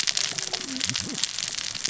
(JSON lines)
{"label": "biophony, cascading saw", "recorder": "SoundTrap 600 or HydroMoth"}